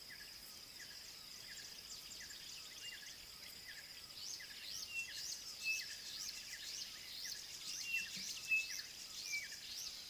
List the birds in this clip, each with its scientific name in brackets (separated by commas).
Chinspot Batis (Batis molitor)